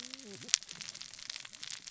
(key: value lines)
label: biophony, cascading saw
recorder: SoundTrap 600 or HydroMoth